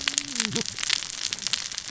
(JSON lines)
{"label": "biophony, cascading saw", "recorder": "SoundTrap 600 or HydroMoth"}